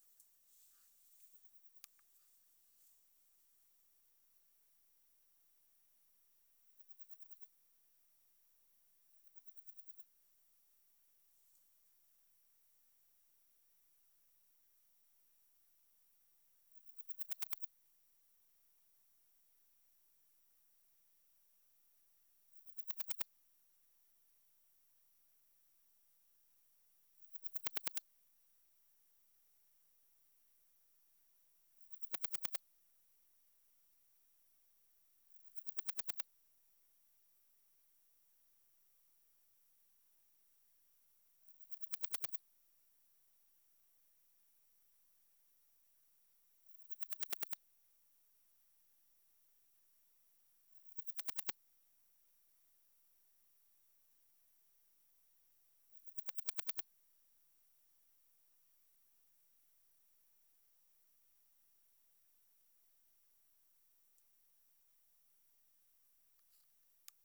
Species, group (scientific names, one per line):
Parnassiana coracis
Orthoptera